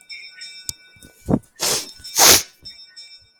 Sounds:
Sneeze